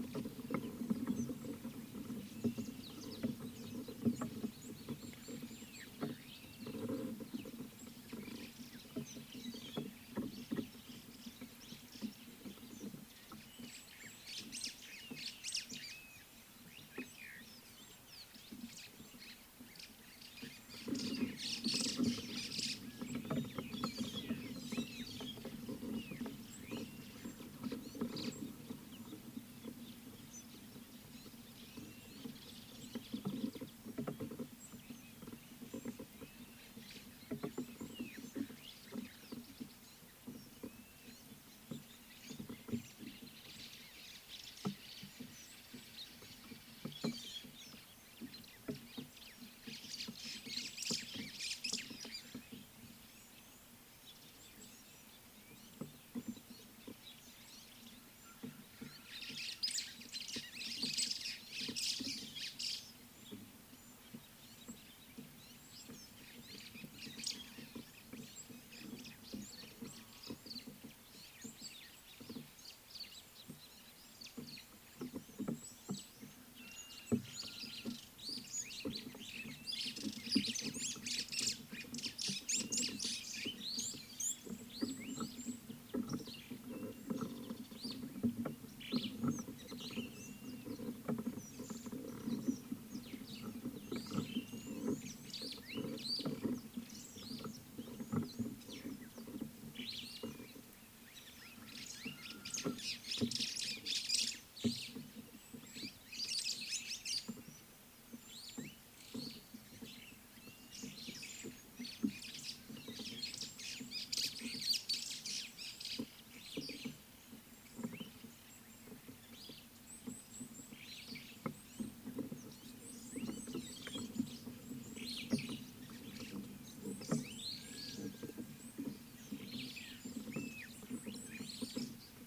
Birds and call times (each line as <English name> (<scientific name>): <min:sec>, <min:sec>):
Red-cheeked Cordonbleu (Uraeginthus bengalus): 0:05.4, 1:15.7, 2:00.3, 2:03.4
White-browed Sparrow-Weaver (Plocepasser mahali): 0:14.6, 0:21.8, 0:50.6, 1:01.1, 1:20.5, 1:43.6, 1:46.7
White-headed Buffalo-Weaver (Dinemellia dinemelli): 0:24.0, 0:47.2
Blue-naped Mousebird (Urocolius macrourus): 1:16.9
Superb Starling (Lamprotornis superbus): 1:28.9, 1:39.9